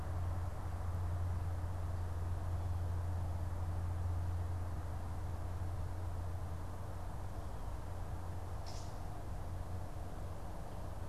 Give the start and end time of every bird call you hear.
8.6s-9.1s: Gray Catbird (Dumetella carolinensis)

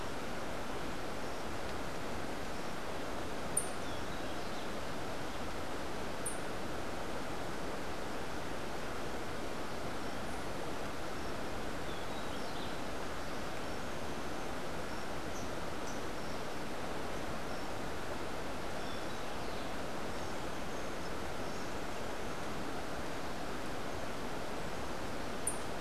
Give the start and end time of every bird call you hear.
3.5s-6.4s: White-eared Ground-Sparrow (Melozone leucotis)
11.8s-12.8s: Rufous-breasted Wren (Pheugopedius rutilus)
25.3s-25.7s: White-eared Ground-Sparrow (Melozone leucotis)

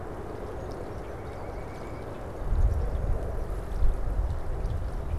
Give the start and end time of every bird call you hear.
0.8s-2.1s: White-breasted Nuthatch (Sitta carolinensis)

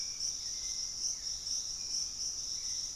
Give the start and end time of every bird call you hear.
0.0s-3.0s: Hauxwell's Thrush (Turdus hauxwelli)

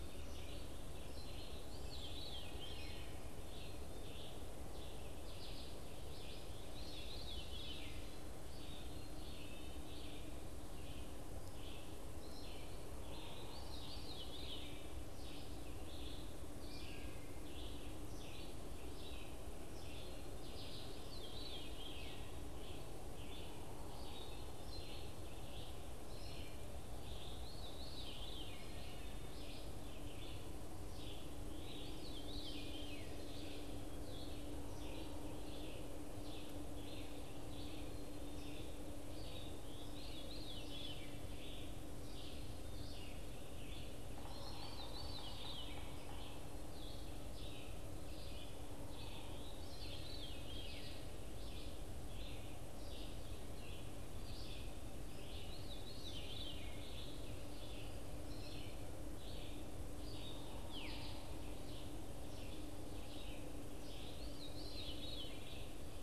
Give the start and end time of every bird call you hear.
0.0s-65.1s: Red-eyed Vireo (Vireo olivaceus)
1.5s-3.1s: Veery (Catharus fuscescens)
6.5s-8.1s: Veery (Catharus fuscescens)
13.3s-14.9s: Veery (Catharus fuscescens)
20.8s-22.6s: Veery (Catharus fuscescens)
26.9s-28.9s: Veery (Catharus fuscescens)
31.5s-33.2s: Veery (Catharus fuscescens)
39.6s-41.2s: Veery (Catharus fuscescens)
44.1s-46.0s: Veery (Catharus fuscescens)
49.3s-51.0s: Veery (Catharus fuscescens)
55.2s-56.8s: Veery (Catharus fuscescens)
60.6s-61.0s: Veery (Catharus fuscescens)
64.0s-65.6s: Veery (Catharus fuscescens)

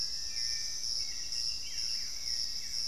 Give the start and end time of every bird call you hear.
0.0s-2.9s: Hauxwell's Thrush (Turdus hauxwelli)
1.4s-2.9s: Buff-throated Woodcreeper (Xiphorhynchus guttatus)

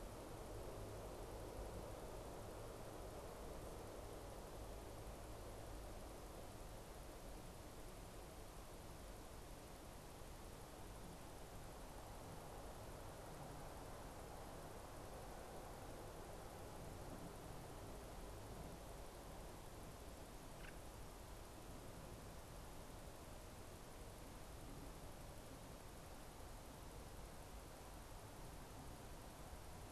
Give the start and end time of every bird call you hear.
20.5s-20.8s: unidentified bird

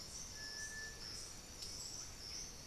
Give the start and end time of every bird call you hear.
0.0s-2.7s: Russet-backed Oropendola (Psarocolius angustifrons)
2.1s-2.7s: White-winged Becard (Pachyramphus polychopterus)

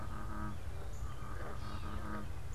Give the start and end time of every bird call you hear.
0.0s-2.5s: Gray Catbird (Dumetella carolinensis)
0.0s-2.5s: unidentified bird

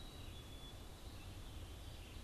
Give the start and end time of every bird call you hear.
0.0s-2.2s: Black-capped Chickadee (Poecile atricapillus)
0.0s-2.2s: Red-eyed Vireo (Vireo olivaceus)
0.6s-2.2s: Veery (Catharus fuscescens)

